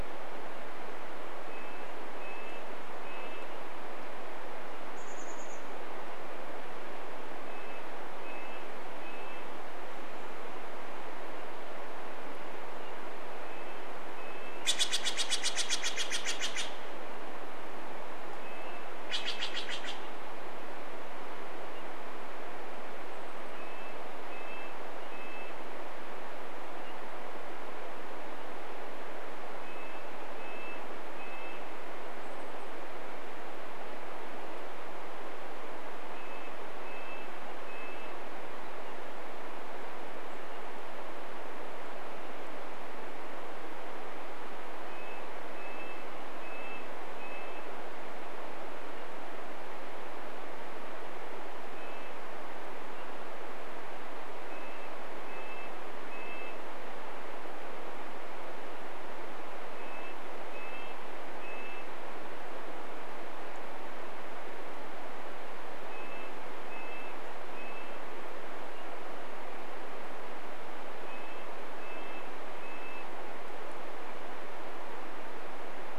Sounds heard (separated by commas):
Red-breasted Nuthatch song, Steller's Jay call, Chestnut-backed Chickadee call, unidentified bird chip note